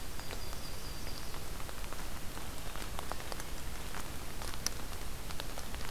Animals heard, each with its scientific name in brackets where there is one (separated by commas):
Yellow-rumped Warbler (Setophaga coronata)